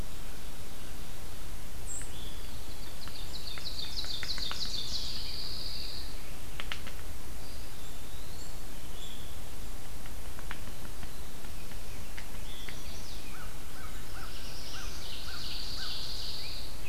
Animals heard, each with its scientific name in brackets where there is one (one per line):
Black-throated Blue Warbler (Setophaga caerulescens)
Yellow-bellied Sapsucker (Sphyrapicus varius)
Veery (Catharus fuscescens)
American Crow (Corvus brachyrhynchos)
White-throated Sparrow (Zonotrichia albicollis)
Pine Warbler (Setophaga pinus)
Ovenbird (Seiurus aurocapilla)
Chestnut-sided Warbler (Setophaga pensylvanica)
Eastern Wood-Pewee (Contopus virens)